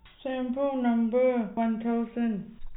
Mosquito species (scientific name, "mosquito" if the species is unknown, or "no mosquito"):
no mosquito